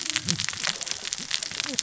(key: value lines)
label: biophony, cascading saw
recorder: SoundTrap 600 or HydroMoth